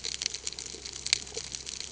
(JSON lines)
{"label": "ambient", "recorder": "HydroMoth"}